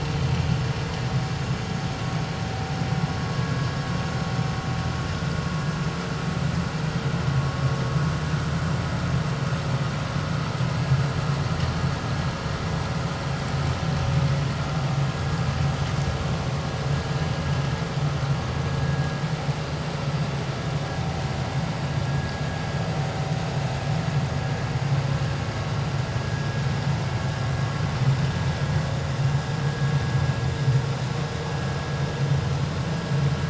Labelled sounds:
22.1	22.4	vessel noise, 1.6 to 1.7 kHz
32.2	32.5	vessel noise, 3.0 to 3.2 kHz

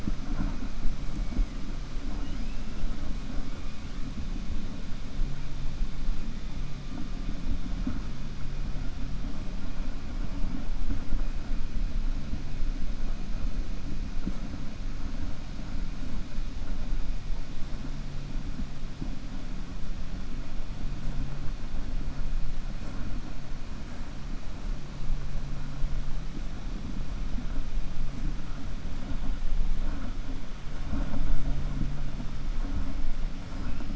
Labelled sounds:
2.1	2.6	killer whale, 1.7 to 3.3 kHz

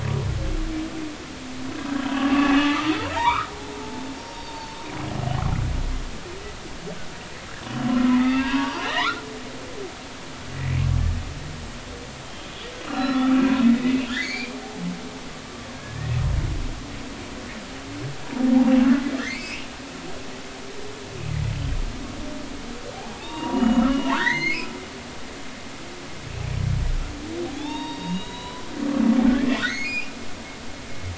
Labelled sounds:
2.0	3.5	humpback whale, 0.80 to 3.3 kHz
3.8	4.8	humpback whale, 0.83 to 4.8 kHz
8.0	9.2	humpback whale, 0.80 to 4.8 kHz
12.3	14.6	humpback whale, 1.1 to 5.6 kHz
15.7	16.2	humpback whale, 1.6 to 2.0 kHz
19.2	19.7	humpback whale, 1.6 to 2.9 kHz
22.9	24.7	humpback whale, 0.80 to 6.9 kHz
27.5	28.6	humpback whale, 0.80 to 6.8 kHz
29.6	30.1	humpback whale, 1.8 to 5.1 kHz

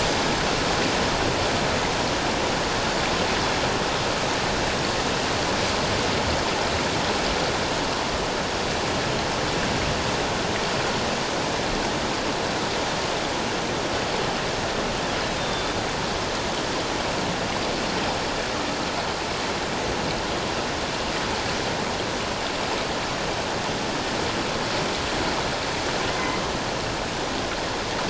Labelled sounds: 15.4	15.7	killer whale, northern resident, A clan, AA subclan, A01 pod, 3.5 to 3.7 kHz
26.1	26.4	killer whale, northern resident, A clan, AA subclan, A01 pod, 2.0 to 2.2 kHz

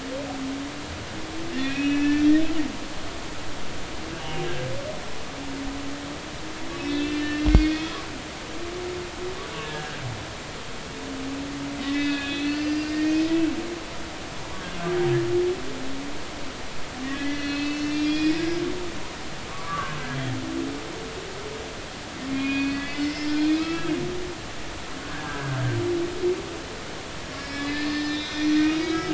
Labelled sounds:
1.5	2.2	humpback whale, 1.8 to 5.8 kHz
2.9	4.5	humpback whale, 1.7 to 3.1 kHz
6.7	7.9	humpback whale, 1.7 to 4.7 kHz
9.6	10.0	humpback whale, 1.5 to 1.8 kHz
11.8	13.2	humpback whale, 1.6 to 5.2 kHz
17.1	18.4	humpback whale, 1.6 to 5.0 kHz
19.5	20.0	humpback whale, 0.99 to 1.7 kHz
22.3	23.9	humpback whale, 1.2 to 5.4 kHz
25.1	25.8	humpback whale, 1.5 to 1.8 kHz
27.4	29.1	humpback whale, 1.2 to 6.0 kHz

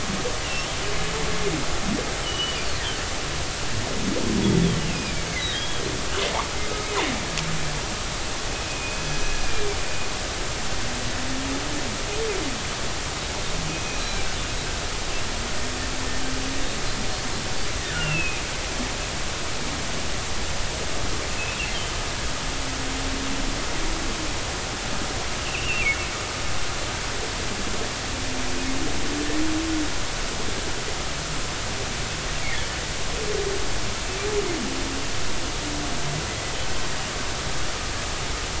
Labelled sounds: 2.2	2.8	humpback whale, 2.8 to 5.0 kHz
4.8	5.8	humpback whale, 1.7 to 3.4 kHz
8.7	9.7	humpback whale, 2.3 to 6.0 kHz
13.7	14.2	humpback whale, 2.3 to 4.1 kHz
17.9	18.4	humpback whale, 1.3 to 2.9 kHz
25.4	25.9	humpback whale, 2.4 to 3.0 kHz
36.3	36.5	humpback whale, 2.0 to 2.1 kHz

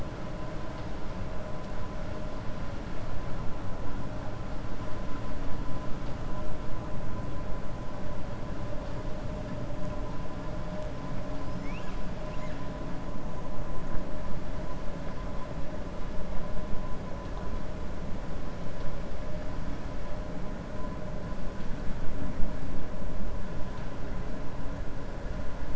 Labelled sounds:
11.4	12.0	killer whale, 1.6 to 7.4 kHz

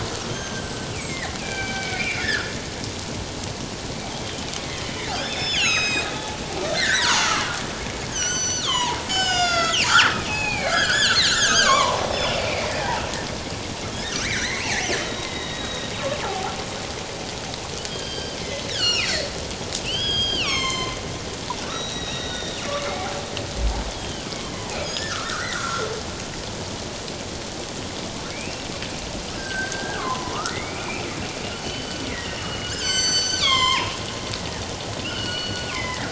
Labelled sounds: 0.3	2.6	killer whale, northern resident, G clan, 1.3 to 6.4 kHz
4.1	6.1	killer whale, northern resident, G clan, 1.2 to 7.8 kHz
6.6	12.9	killer whale, northern resident, G clan, 0.78 to 8.0 kHz
14.2	15.9	killer whale, northern resident, G clan, 0.78 to 4.3 kHz
16.2	16.5	killer whale, northern resident, G clan, 0.78 to 0.94 kHz
17.9	21.0	killer whale, northern resident, G clan, 0.97 to 7.8 kHz
21.7	22.6	killer whale, northern resident, G clan, 1.3 to 6.0 kHz
23.9	24.2	killer whale, northern resident, G clan, 2.8 to 3.5 kHz
24.8	25.9	killer whale, northern resident, G clan, 1.0 to 7.2 kHz
28.3	28.7	killer whale, northern resident, G clan, 2.1 to 2.8 kHz
29.3	31.1	killer whale, northern resident, G clan, 0.94 to 8.0 kHz
31.6	34.6	killer whale, northern resident, G clan, 0.88 to 7.7 kHz
35.0	36.1	killer whale, northern resident, G clan, 1.3 to 4.5 kHz

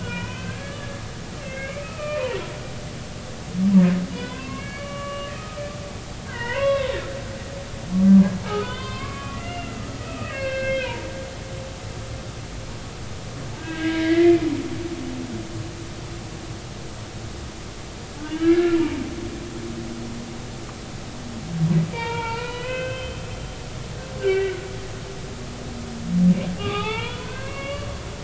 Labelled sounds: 0.0	1.0	humpback whale, 0.93 to 3.1 kHz
1.4	2.3	humpback whale, 1.2 to 2.8 kHz
4.1	5.7	humpback whale, 0.93 to 3.6 kHz
6.3	7.0	humpback whale, 0.90 to 4.0 kHz
7.9	9.7	humpback whale, 0.96 to 4.8 kHz
10.0	11.0	humpback whale, 1.2 to 3.3 kHz
13.6	14.5	humpback whale, 1.5 to 2.5 kHz
18.2	19.0	humpback whale, 0.86 to 4.0 kHz
21.9	23.2	humpback whale, 0.86 to 4.4 kHz
24.2	24.6	humpback whale, 1.4 to 2.8 kHz
26.6	27.9	humpback whale, 0.80 to 3.9 kHz

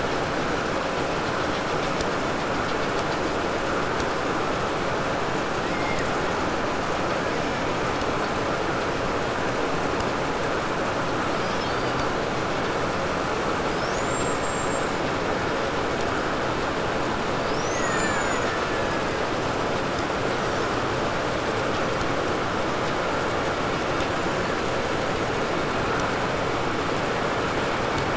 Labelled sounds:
5.5	6.2	killer whale, Bigg's (transient), 1.4 to 5.4 kHz
6.9	8.0	killer whale, 1.0 to 3.2 kHz
10.9	12.2	killer whale, 2.0 to 8.0 kHz
13.5	15.2	killer whale, 3.8 to 8.0 kHz
17.3	19.7	killer whale, Bigg's (transient), call T08, 0.66 to 8.0 kHz

